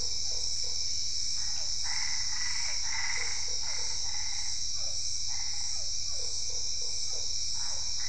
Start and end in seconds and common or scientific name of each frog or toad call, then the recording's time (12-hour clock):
0.0	0.8	Usina tree frog
1.5	8.0	Physalaemus cuvieri
1.8	4.7	Boana albopunctata
3.2	4.1	Usina tree frog
5.3	5.9	Boana albopunctata
6.2	7.3	Usina tree frog
9:00pm